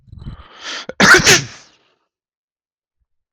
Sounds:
Sneeze